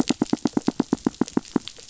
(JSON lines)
{"label": "biophony, knock", "recorder": "SoundTrap 500"}